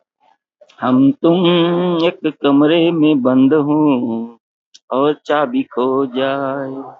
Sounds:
Sigh